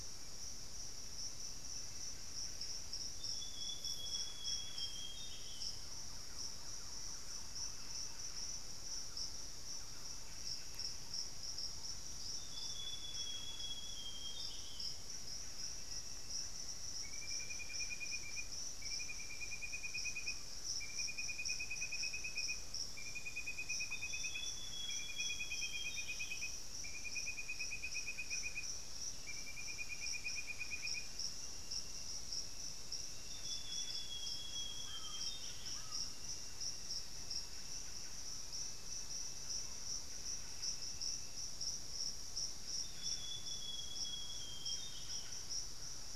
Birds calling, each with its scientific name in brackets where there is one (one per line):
Thrush-like Wren (Campylorhynchus turdinus)
Amazonian Grosbeak (Cyanoloxia rothschildii)
Screaming Piha (Lipaugus vociferans)
Buff-breasted Wren (Cantorchilus leucotis)
Black-faced Antthrush (Formicarius analis)